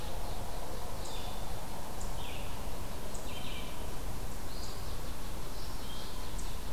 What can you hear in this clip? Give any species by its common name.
unknown mammal, Red-eyed Vireo